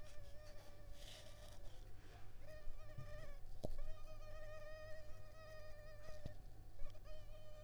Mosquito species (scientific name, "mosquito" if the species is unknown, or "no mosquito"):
Culex pipiens complex